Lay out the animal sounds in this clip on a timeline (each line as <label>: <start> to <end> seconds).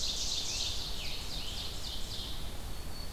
Ovenbird (Seiurus aurocapilla): 0.0 to 2.5 seconds
Red-eyed Vireo (Vireo olivaceus): 0.0 to 3.1 seconds
Black-throated Green Warbler (Setophaga virens): 2.4 to 3.1 seconds